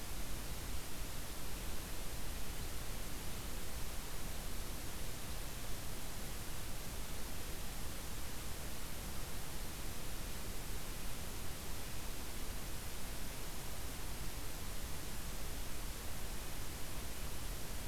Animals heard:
forest ambience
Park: Acadia National Park